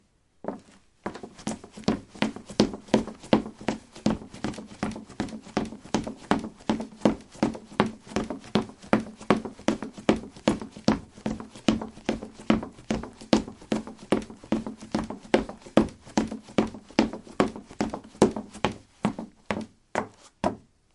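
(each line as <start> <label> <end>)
0.0 Footsteps running steadily on a wooden floor. 20.9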